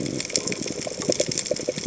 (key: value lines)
label: biophony, chatter
recorder: HydroMoth

label: biophony
recorder: HydroMoth